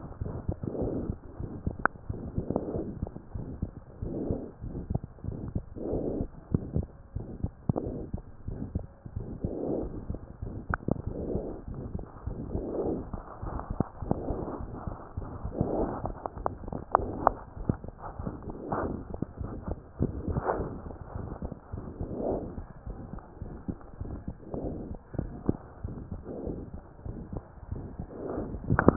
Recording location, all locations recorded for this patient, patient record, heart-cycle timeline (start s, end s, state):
pulmonary valve (PV)
aortic valve (AV)+pulmonary valve (PV)+tricuspid valve (TV)+mitral valve (MV)
#Age: Child
#Sex: Female
#Height: 101.0 cm
#Weight: 18.7 kg
#Pregnancy status: False
#Murmur: Present
#Murmur locations: aortic valve (AV)+mitral valve (MV)+pulmonary valve (PV)+tricuspid valve (TV)
#Most audible location: pulmonary valve (PV)
#Systolic murmur timing: Early-systolic
#Systolic murmur shape: Plateau
#Systolic murmur grading: II/VI
#Systolic murmur pitch: Low
#Systolic murmur quality: Blowing
#Diastolic murmur timing: nan
#Diastolic murmur shape: nan
#Diastolic murmur grading: nan
#Diastolic murmur pitch: nan
#Diastolic murmur quality: nan
#Outcome: Abnormal
#Campaign: 2015 screening campaign
0.00	1.17	unannotated
1.17	1.40	diastole
1.40	1.52	S1
1.52	1.66	systole
1.66	1.76	S2
1.76	2.07	diastole
2.07	2.18	S1
2.18	2.38	systole
2.38	2.46	S2
2.46	2.74	diastole
2.74	2.86	S1
2.86	3.02	systole
3.02	3.10	S2
3.10	3.34	diastole
3.34	3.46	S1
3.46	3.60	systole
3.60	3.70	S2
3.70	3.99	diastole
3.99	4.09	S1
4.09	4.27	systole
4.27	4.38	S2
4.38	4.60	diastole
4.60	4.69	S1
4.69	4.86	systole
4.86	4.98	S2
4.98	5.24	diastole
5.24	5.36	S1
5.36	5.51	systole
5.51	5.62	S2
5.62	5.89	diastole
5.89	6.00	S1
6.00	6.14	systole
6.14	6.28	S2
6.28	6.52	diastole
6.52	6.63	S1
6.63	6.75	systole
6.75	6.86	S2
6.86	7.13	diastole
7.13	7.26	S1
7.26	7.42	systole
7.42	7.52	S2
7.52	7.68	diastole
7.68	28.96	unannotated